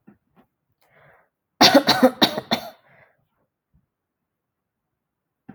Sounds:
Cough